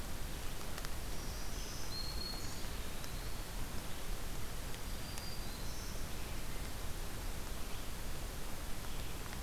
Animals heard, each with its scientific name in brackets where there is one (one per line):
Eastern Wood-Pewee (Contopus virens)
Black-throated Green Warbler (Setophaga virens)